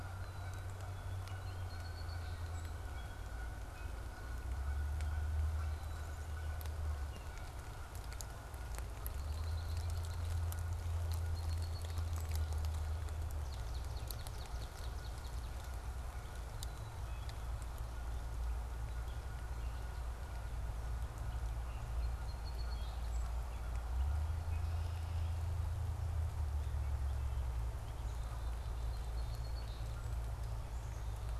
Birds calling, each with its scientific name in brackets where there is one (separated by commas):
Black-capped Chickadee (Poecile atricapillus), Swamp Sparrow (Melospiza georgiana), Canada Goose (Branta canadensis), Red-winged Blackbird (Agelaius phoeniceus), Song Sparrow (Melospiza melodia), Gray Catbird (Dumetella carolinensis)